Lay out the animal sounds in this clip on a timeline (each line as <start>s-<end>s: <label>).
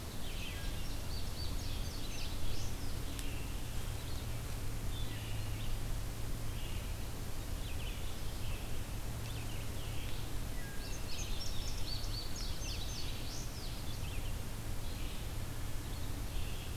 0.0s-16.8s: Red-eyed Vireo (Vireo olivaceus)
0.6s-2.9s: Indigo Bunting (Passerina cyanea)
10.8s-13.3s: Indigo Bunting (Passerina cyanea)